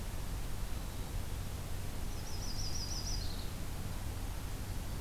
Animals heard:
Yellow-rumped Warbler (Setophaga coronata), Black-capped Chickadee (Poecile atricapillus)

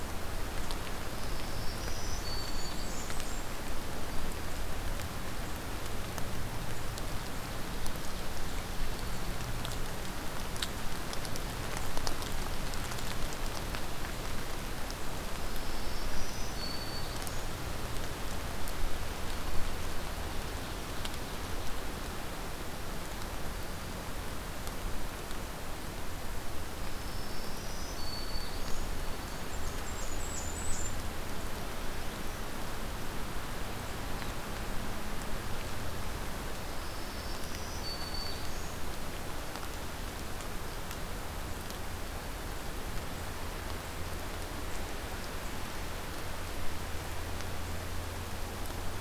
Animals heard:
Black-throated Green Warbler (Setophaga virens), Ovenbird (Seiurus aurocapilla), Blackburnian Warbler (Setophaga fusca)

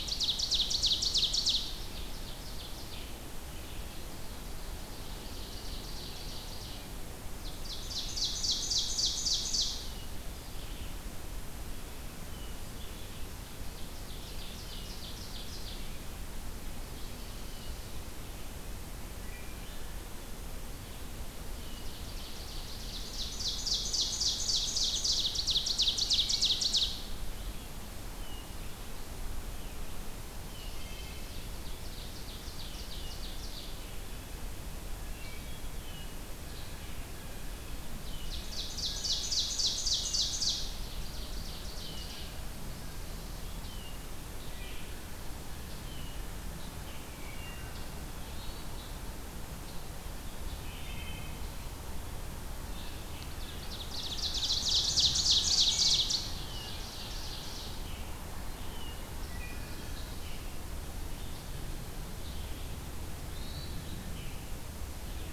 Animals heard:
Red-eyed Vireo (Vireo olivaceus), Wood Thrush (Hylocichla mustelina), Pine Warbler (Setophaga pinus), Hermit Thrush (Catharus guttatus), Ovenbird (Seiurus aurocapilla), Blue Jay (Cyanocitta cristata)

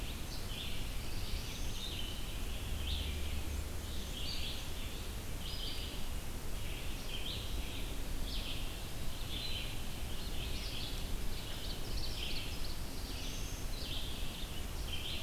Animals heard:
Black-throated Blue Warbler (Setophaga caerulescens), Black-and-white Warbler (Mniotilta varia), Ovenbird (Seiurus aurocapilla), Red-eyed Vireo (Vireo olivaceus)

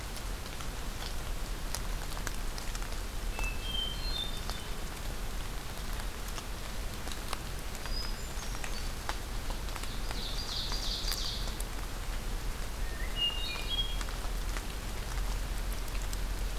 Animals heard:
Ovenbird (Seiurus aurocapilla), Hermit Thrush (Catharus guttatus)

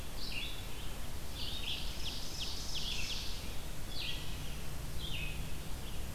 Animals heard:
Ovenbird (Seiurus aurocapilla), Red-eyed Vireo (Vireo olivaceus)

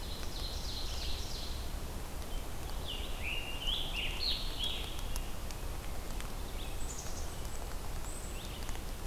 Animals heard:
Red-eyed Vireo (Vireo olivaceus), Black-capped Chickadee (Poecile atricapillus), Ovenbird (Seiurus aurocapilla), Scarlet Tanager (Piranga olivacea)

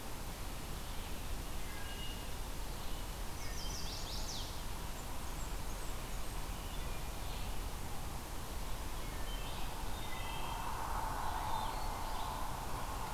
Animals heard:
Chestnut-sided Warbler (Setophaga pensylvanica), Blackburnian Warbler (Setophaga fusca), Wood Thrush (Hylocichla mustelina), Red-eyed Vireo (Vireo olivaceus)

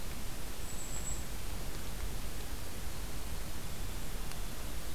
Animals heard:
Golden-crowned Kinglet (Regulus satrapa)

